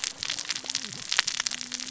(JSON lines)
{"label": "biophony, cascading saw", "recorder": "SoundTrap 600 or HydroMoth"}